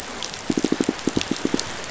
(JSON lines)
{"label": "biophony, pulse", "recorder": "SoundTrap 500"}